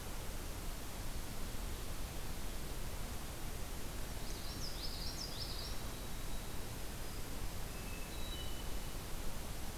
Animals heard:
White-throated Sparrow (Zonotrichia albicollis), Common Yellowthroat (Geothlypis trichas), Hermit Thrush (Catharus guttatus)

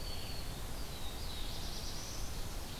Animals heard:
Black-throated Blue Warbler (Setophaga caerulescens), Red-eyed Vireo (Vireo olivaceus), Black-throated Green Warbler (Setophaga virens)

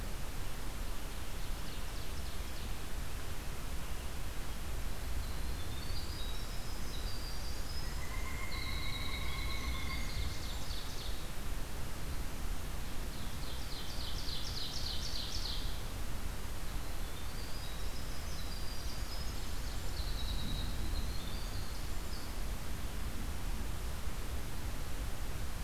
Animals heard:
Winter Wren (Troglodytes hiemalis), Ovenbird (Seiurus aurocapilla), Pileated Woodpecker (Dryocopus pileatus)

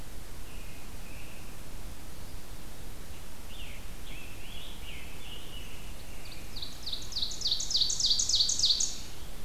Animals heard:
Scarlet Tanager (Piranga olivacea), American Robin (Turdus migratorius), Ovenbird (Seiurus aurocapilla)

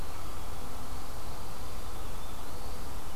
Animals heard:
Black-throated Blue Warbler (Setophaga caerulescens), Pine Warbler (Setophaga pinus)

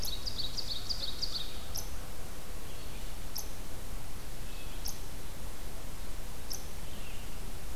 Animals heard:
unknown mammal, Ovenbird (Seiurus aurocapilla), Red-eyed Vireo (Vireo olivaceus)

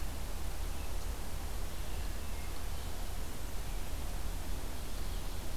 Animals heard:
Hermit Thrush (Catharus guttatus)

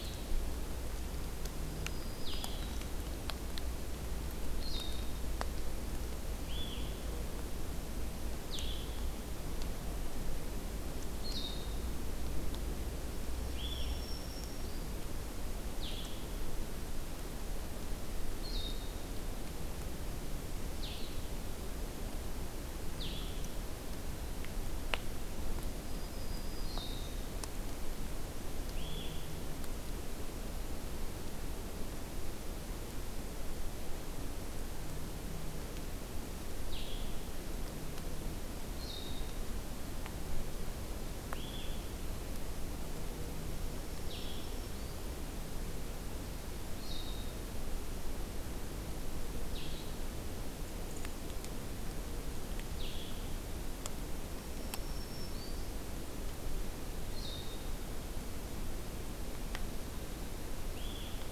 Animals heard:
Black-throated Green Warbler (Setophaga virens), Blue-headed Vireo (Vireo solitarius)

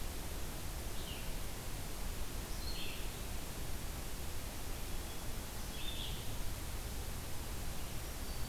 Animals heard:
Red-eyed Vireo (Vireo olivaceus)

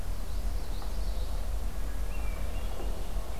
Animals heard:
Common Yellowthroat (Geothlypis trichas), Hermit Thrush (Catharus guttatus)

